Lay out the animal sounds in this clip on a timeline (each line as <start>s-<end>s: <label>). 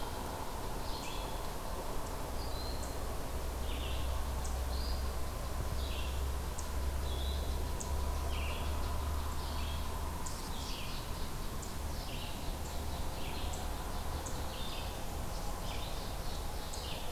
0.0s-5.3s: Red-eyed Vireo (Vireo olivaceus)
2.3s-3.1s: Broad-winged Hawk (Buteo platypterus)
4.6s-5.2s: unidentified call
5.6s-17.1s: Red-eyed Vireo (Vireo olivaceus)
6.5s-9.9s: unknown mammal
10.3s-17.1s: unknown mammal